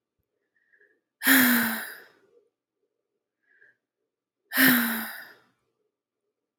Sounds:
Sigh